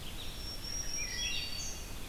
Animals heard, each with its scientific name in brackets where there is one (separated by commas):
Wood Thrush (Hylocichla mustelina), Black-throated Green Warbler (Setophaga virens)